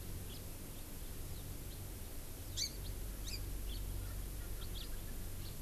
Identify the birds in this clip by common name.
House Finch, Hawaii Amakihi, Erckel's Francolin